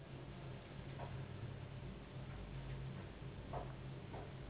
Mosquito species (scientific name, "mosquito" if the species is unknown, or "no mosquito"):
Anopheles gambiae s.s.